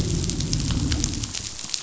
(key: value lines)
label: biophony, growl
recorder: SoundTrap 500